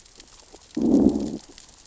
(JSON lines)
{"label": "biophony, growl", "recorder": "SoundTrap 600 or HydroMoth"}